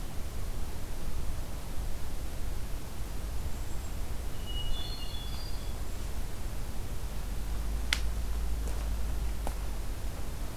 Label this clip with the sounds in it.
Hermit Thrush